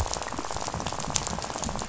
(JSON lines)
{"label": "biophony, rattle", "recorder": "SoundTrap 500"}